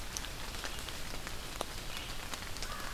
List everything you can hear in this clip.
Red-eyed Vireo